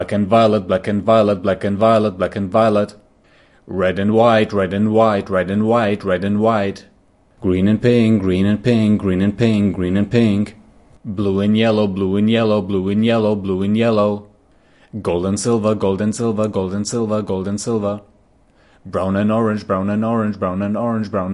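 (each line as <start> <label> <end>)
0.0 A deep male voice speaks in a mechanical, precise rhythm, repeating pairs of colors four times with a robotic undertone. 21.3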